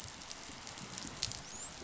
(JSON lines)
{"label": "biophony, dolphin", "recorder": "SoundTrap 500"}